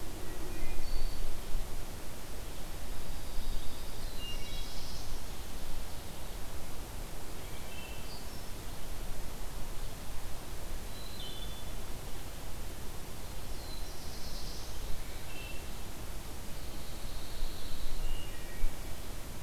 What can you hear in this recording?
Wood Thrush, Pine Warbler, Black-throated Blue Warbler, Ovenbird